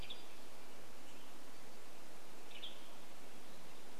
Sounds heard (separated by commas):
warbler song, Western Tanager call